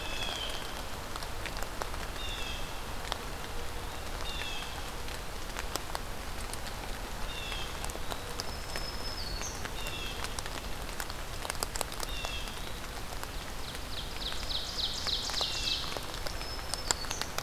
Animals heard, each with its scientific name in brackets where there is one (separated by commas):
Black-throated Green Warbler (Setophaga virens), Ovenbird (Seiurus aurocapilla), Blue Jay (Cyanocitta cristata)